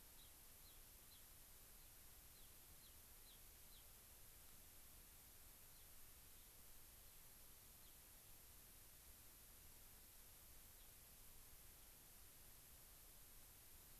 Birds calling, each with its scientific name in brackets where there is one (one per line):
Gray-crowned Rosy-Finch (Leucosticte tephrocotis)